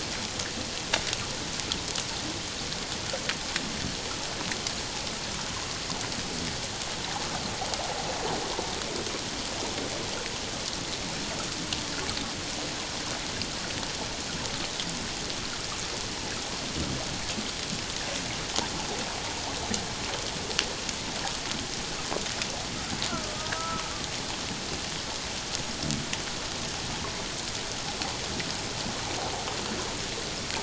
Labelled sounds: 23.1	23.8	killer whale, Bigg's (transient), 1.2 to 1.5 kHz

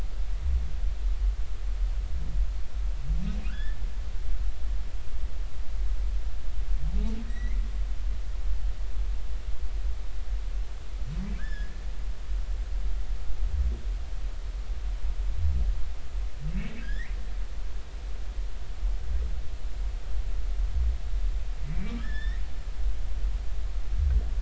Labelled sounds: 3.5	3.8	humpback whale, 1.2 to 1.9 kHz
7.3	7.6	humpback whale, 1.8 to 5.9 kHz
11.4	11.7	humpback whale, 1.5 to 5.3 kHz
16.8	17.2	humpback whale, 1.5 to 2.5 kHz
21.7	22.4	humpback whale, 1.6 to 5.6 kHz

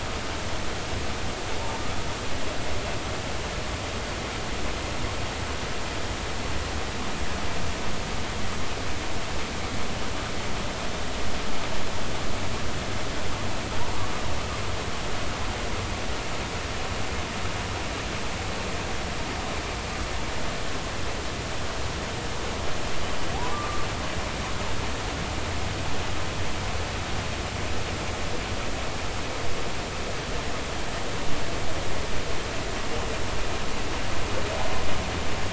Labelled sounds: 23.5	23.9	humpback whale, 1.1 to 1.2 kHz

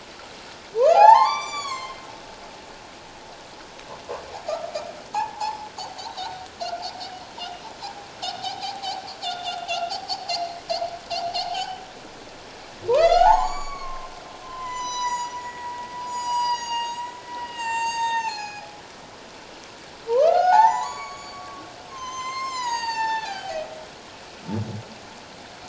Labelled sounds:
0.8	2.0	humpback whale, 0.78 to 8.0 kHz
5.1	5.6	humpback whale, 0.78 to 1.8 kHz
8.4	10.6	humpback whale, 0.78 to 5.0 kHz
11.5	11.8	humpback whale, 2.9 to 3.2 kHz
12.9	14.1	humpback whale, 0.78 to 6.9 kHz
14.4	17.1	humpback whale, 0.88 to 7.9 kHz
17.4	18.7	humpback whale, 0.78 to 7.8 kHz
20.1	23.6	humpback whale, 0.78 to 7.6 kHz

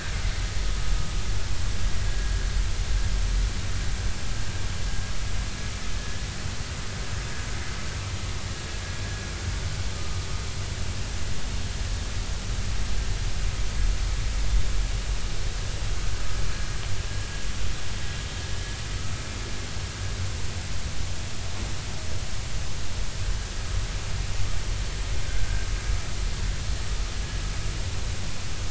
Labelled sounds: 6.0	6.2	vessel noise, 1.7 to 1.8 kHz
25.3	25.7	vessel noise, 1.4 to 1.7 kHz

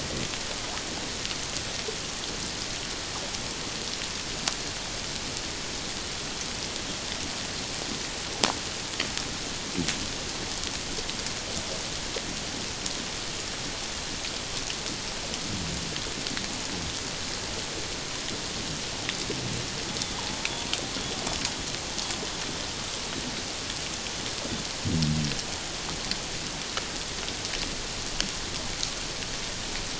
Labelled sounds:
20.0	20.4	killer whale, Bigg's (transient), 0.78 to 3.6 kHz

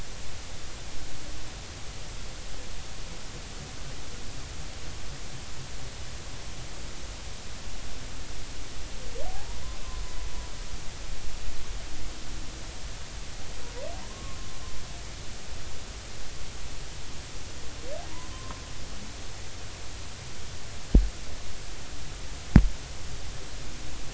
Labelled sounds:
14.1	14.4	humpback whale, 1.0 to 1.2 kHz
18.3	18.6	humpback whale, 0.96 to 1.1 kHz

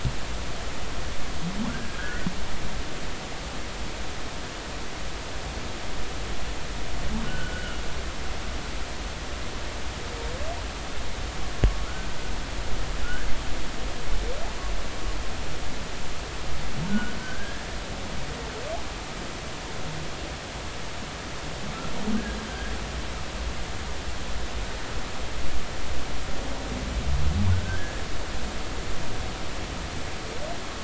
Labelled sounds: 1.7	2.3	humpback whale, 1.3 to 2.0 kHz
7.2	7.8	humpback whale, 1.3 to 3.1 kHz
11.8	12.1	humpback whale, 1.2 to 1.6 kHz
13.0	13.3	humpback whale, 1.3 to 1.8 kHz
16.9	17.7	humpback whale, 1.4 to 1.8 kHz
27.5	28.0	humpback whale, 1.4 to 1.8 kHz

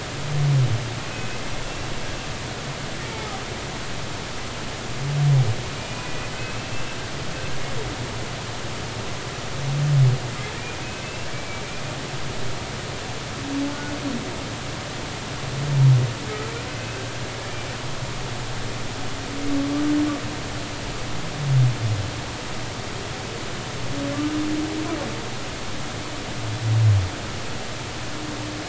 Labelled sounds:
1.6	1.9	humpback whale, 2.7 to 2.8 kHz
3.0	3.4	humpback whale, 0.80 to 2.3 kHz
5.8	6.8	humpback whale, 1.9 to 2.7 kHz
11.0	11.6	humpback whale, 2.2 to 2.8 kHz

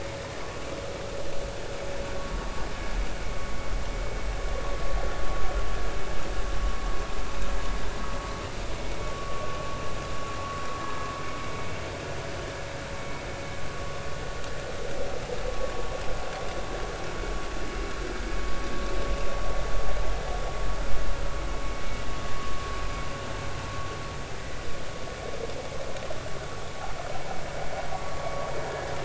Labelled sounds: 9.0	9.5	vessel noise, 1.1 to 1.2 kHz
10.8	11.1	vessel noise, 1.6 to 1.8 kHz
28.0	28.3	vessel noise, 1.1 to 1.2 kHz

